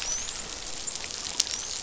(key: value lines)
label: biophony, dolphin
recorder: SoundTrap 500